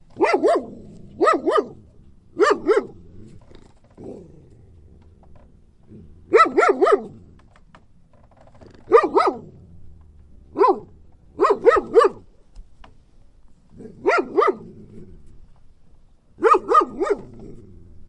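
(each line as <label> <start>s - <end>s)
A dog barks. 0.1s - 0.6s
A dog barks. 1.2s - 1.7s
A dog barks. 2.3s - 3.0s
A dog growls. 4.0s - 4.3s
A dog barks. 6.3s - 7.1s
A dog barks. 8.8s - 9.5s
A dog barks. 10.5s - 12.2s
A dog barks. 14.0s - 14.6s
A dog barks. 16.4s - 17.2s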